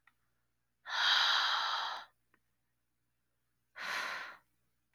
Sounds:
Sigh